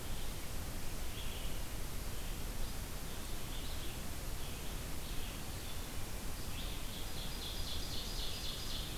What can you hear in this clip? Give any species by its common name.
Red-eyed Vireo, Ovenbird